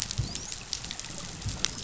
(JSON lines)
{"label": "biophony, dolphin", "recorder": "SoundTrap 500"}